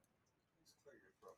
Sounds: Cough